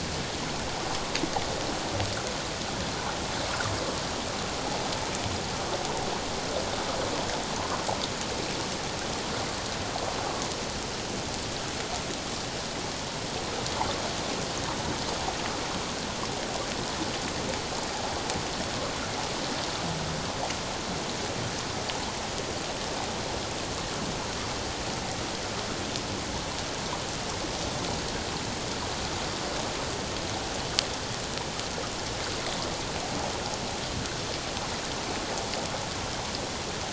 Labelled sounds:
7.6	7.8	water noise, 0.97 to 1.2 kHz

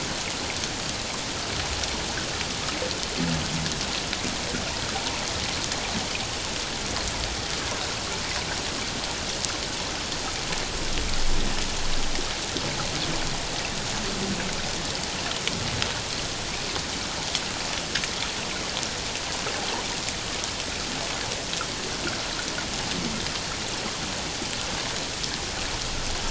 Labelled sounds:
4.9	5.2	water noise, 0.78 to 1.1 kHz

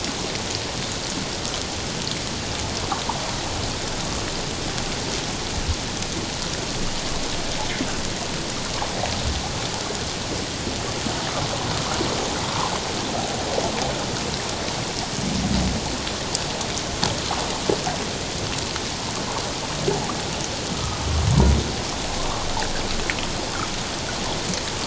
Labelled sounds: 20.7	21.0	humpback whale, 1.2 to 1.3 kHz

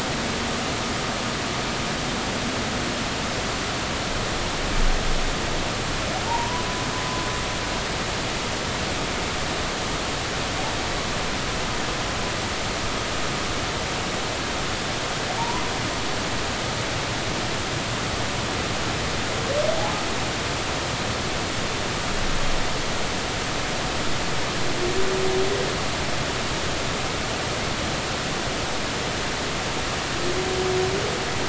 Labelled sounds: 6.3	6.7	humpback whale, 0.80 to 1.1 kHz
15.4	15.6	humpback whale, 0.86 to 1.1 kHz

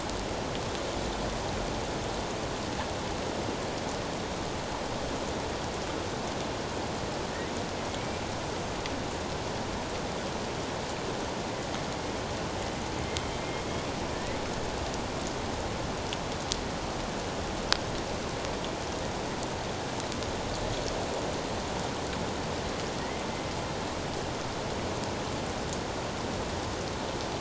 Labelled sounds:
7.9	8.2	killer whale, northern resident, A clan, AA subclan, A04 pod, 2.1 to 2.4 kHz
14.1	14.4	killer whale, northern resident, A clan, AA subclan, A04 pod, 1.7 to 2.1 kHz

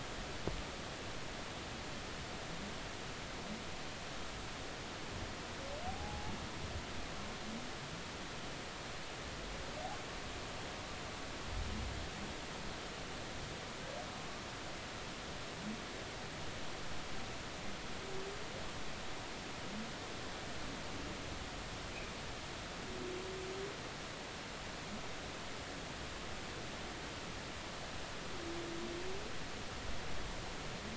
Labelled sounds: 5.9	6.3	humpback whale, 0.80 to 0.93 kHz

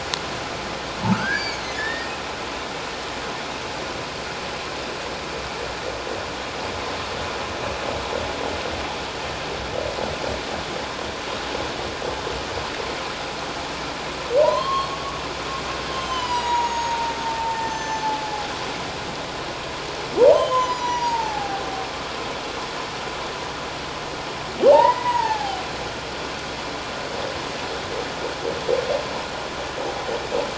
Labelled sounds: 1.1	2.1	humpback whale, 1.2 to 4.8 kHz
14.4	15.2	humpback whale, 0.88 to 3.3 kHz
15.9	18.5	humpback whale, 0.78 to 8.0 kHz
20.2	21.6	humpback whale, 0.78 to 7.0 kHz
24.7	25.6	humpback whale, 0.78 to 2.0 kHz

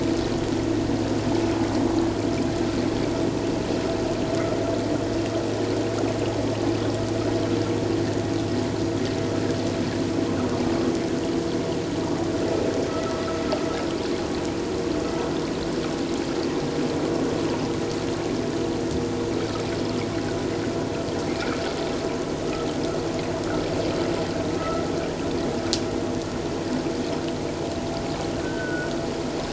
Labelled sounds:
12.9	13.2	vessel noise, 1.2 to 1.4 kHz
24.6	24.8	vessel noise, 1.2 to 1.4 kHz
28.4	28.9	vessel noise, 1.4 to 1.6 kHz

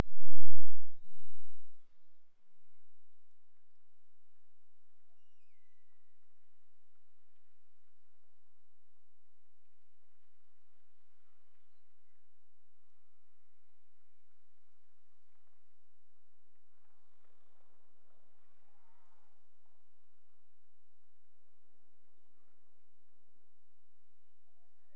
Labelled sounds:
5.1	6.7	killer whale, Bigg's (transient), Gulf of Alaska transient, 1.8 to 8.0 kHz

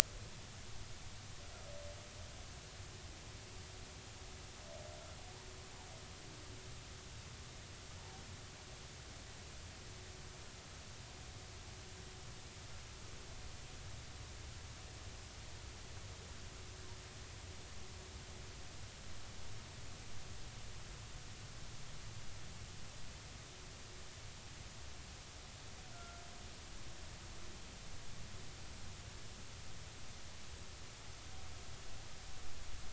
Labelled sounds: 8.0	8.2	humpback whale, 0.80 to 0.96 kHz
25.9	26.2	humpback whale, 1.3 to 1.6 kHz

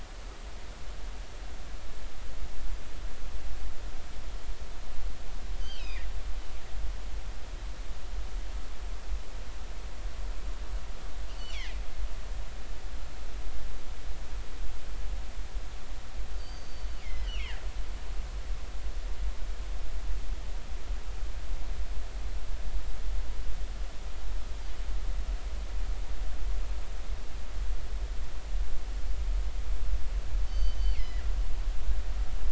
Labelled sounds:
5.6	6.1	killer whale, northern resident, G clan, GG subclan, call N23ii, 1.8 to 3.2 kHz
11.3	11.6	killer whale, northern resident, G clan, GG subclan, call N23ii, 2.7 to 3.1 kHz
16.3	17.3	killer whale, northern resident, G clan, GG subclan, call N23ii, 1.8 to 6.3 kHz
17.2	17.6	killer whale, northern resident, G clan, GG subclan, 1.5 to 3.2 kHz
30.5	31.3	killer whale, northern resident, G clan, GG subclan, call N23ii, 1.6 to 6.2 kHz

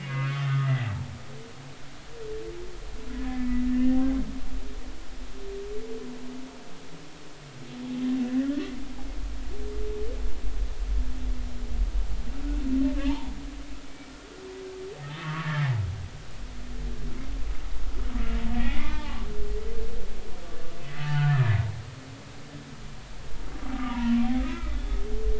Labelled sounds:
0.0	0.7	humpback whale, 1.0 to 2.3 kHz
3.2	4.0	humpback whale, 1.7 to 2.1 kHz
8.4	8.7	humpback whale, 1.6 to 1.9 kHz
13.1	13.3	humpback whale, 0.80 to 1.2 kHz
13.9	14.1	humpback whale, 2.2 to 2.3 kHz
15.0	15.6	humpback whale, 1.1 to 3.2 kHz
18.6	19.3	humpback whale, 0.80 to 2.5 kHz
21.0	21.6	humpback whale, 0.83 to 3.1 kHz
23.7	24.0	humpback whale, 1.1 to 1.3 kHz
24.4	24.8	humpback whale, 1.2 to 2.4 kHz

